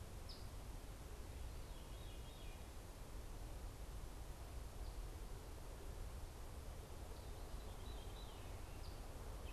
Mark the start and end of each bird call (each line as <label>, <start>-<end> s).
Eastern Phoebe (Sayornis phoebe), 0.0-9.5 s
Veery (Catharus fuscescens), 1.2-9.5 s